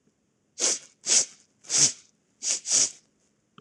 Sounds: Sniff